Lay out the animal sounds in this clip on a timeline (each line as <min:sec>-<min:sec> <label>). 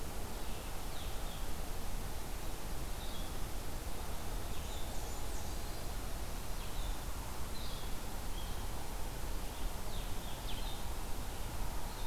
0:00.7-0:12.1 Red-eyed Vireo (Vireo olivaceus)
0:04.3-0:05.8 Blackburnian Warbler (Setophaga fusca)